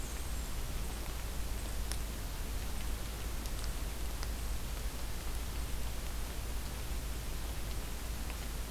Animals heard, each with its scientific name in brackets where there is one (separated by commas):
Black-and-white Warbler (Mniotilta varia)